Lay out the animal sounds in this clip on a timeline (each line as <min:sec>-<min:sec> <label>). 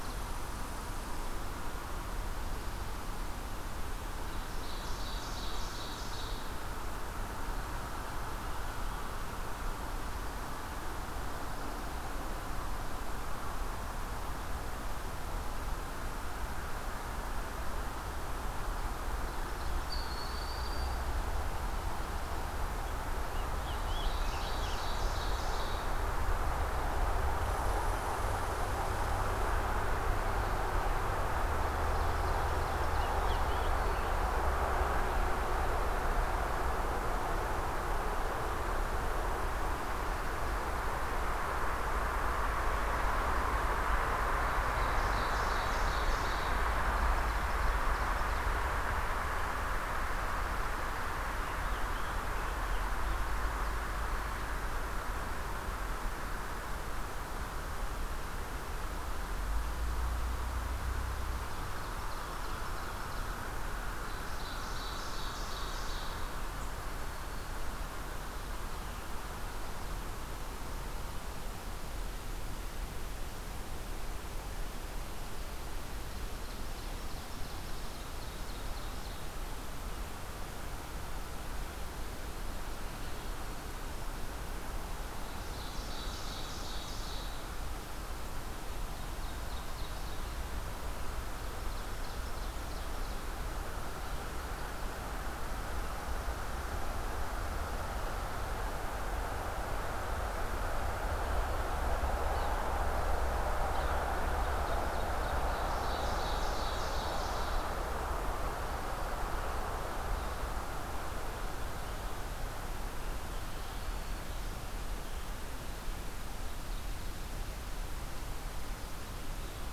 0:00.0-0:01.5 Red Squirrel (Tamiasciurus hudsonicus)
0:03.9-0:06.6 Ovenbird (Seiurus aurocapilla)
0:19.7-0:21.3 Broad-winged Hawk (Buteo platypterus)
0:22.9-0:25.2 Scarlet Tanager (Piranga olivacea)
0:23.8-0:26.0 Ovenbird (Seiurus aurocapilla)
0:27.4-0:29.7 Red Squirrel (Tamiasciurus hudsonicus)
0:31.6-0:33.8 Ovenbird (Seiurus aurocapilla)
0:32.3-0:34.3 Scarlet Tanager (Piranga olivacea)
0:44.3-0:48.6 Ovenbird (Seiurus aurocapilla)
0:51.4-0:53.7 Scarlet Tanager (Piranga olivacea)
1:01.5-1:03.5 Ovenbird (Seiurus aurocapilla)
1:04.0-1:06.5 Ovenbird (Seiurus aurocapilla)
1:06.8-1:07.9 Black-throated Green Warbler (Setophaga virens)
1:16.1-1:19.3 Ovenbird (Seiurus aurocapilla)
1:22.8-1:24.2 Black-throated Green Warbler (Setophaga virens)
1:25.2-1:27.6 Ovenbird (Seiurus aurocapilla)
1:29.0-1:30.3 Ovenbird (Seiurus aurocapilla)
1:31.6-1:33.4 Ovenbird (Seiurus aurocapilla)
1:42.1-1:42.6 Yellow-bellied Sapsucker (Sphyrapicus varius)
1:43.5-1:44.1 Yellow-bellied Sapsucker (Sphyrapicus varius)
1:44.3-1:48.0 Ovenbird (Seiurus aurocapilla)
1:53.3-1:54.7 Black-throated Green Warbler (Setophaga virens)